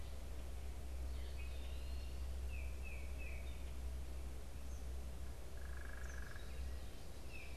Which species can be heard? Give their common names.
Tufted Titmouse, Eastern Wood-Pewee, unidentified bird